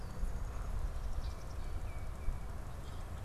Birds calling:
Tufted Titmouse (Baeolophus bicolor)
Common Grackle (Quiscalus quiscula)

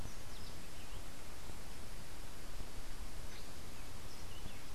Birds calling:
Clay-colored Thrush (Turdus grayi)

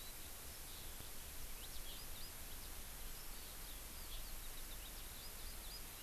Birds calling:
Eurasian Skylark (Alauda arvensis)

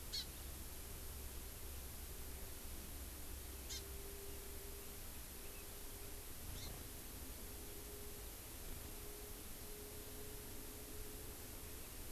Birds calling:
Hawaii Amakihi (Chlorodrepanis virens)

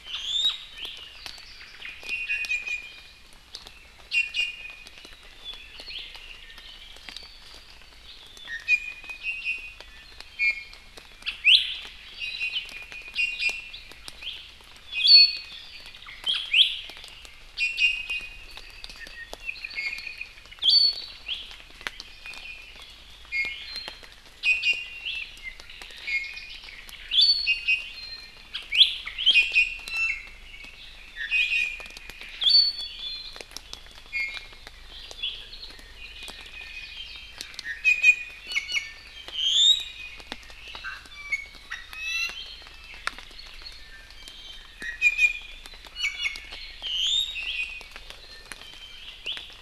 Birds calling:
Iiwi (Drepanis coccinea)
Apapane (Himatione sanguinea)

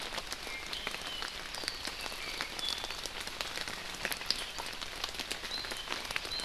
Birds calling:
Apapane (Himatione sanguinea)
Iiwi (Drepanis coccinea)

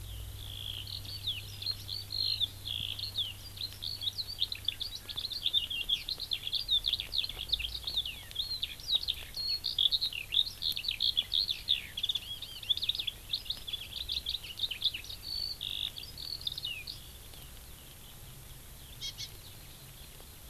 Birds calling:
Hawaii Amakihi (Chlorodrepanis virens)
Eurasian Skylark (Alauda arvensis)

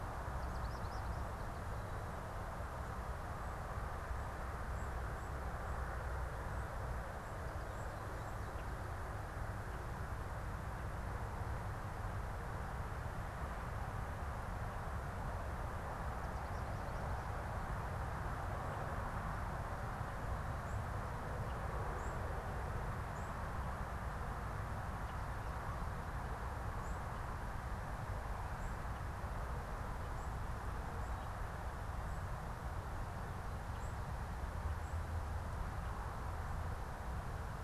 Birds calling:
American Goldfinch (Spinus tristis)
unidentified bird

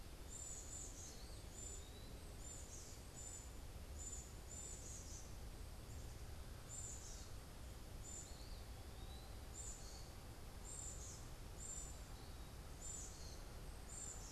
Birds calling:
Black-capped Chickadee (Poecile atricapillus)

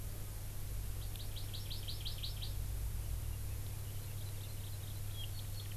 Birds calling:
Hawaii Amakihi (Chlorodrepanis virens)

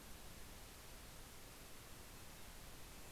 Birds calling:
Golden-crowned Kinglet (Regulus satrapa)
Red-breasted Nuthatch (Sitta canadensis)

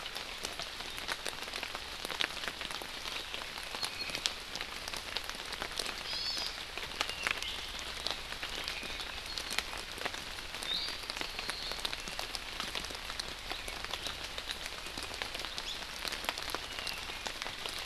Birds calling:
Iiwi (Drepanis coccinea)
Hawaii Amakihi (Chlorodrepanis virens)

